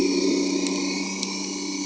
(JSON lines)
{"label": "anthrophony, boat engine", "recorder": "HydroMoth"}